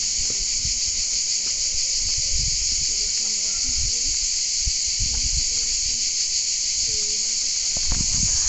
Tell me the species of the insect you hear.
Cicada orni